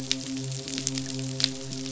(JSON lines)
{"label": "biophony, midshipman", "recorder": "SoundTrap 500"}